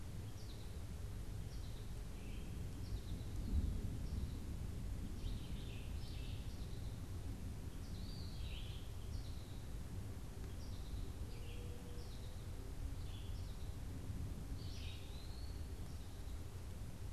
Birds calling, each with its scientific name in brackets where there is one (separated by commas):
American Goldfinch (Spinus tristis), Red-eyed Vireo (Vireo olivaceus), Eastern Wood-Pewee (Contopus virens)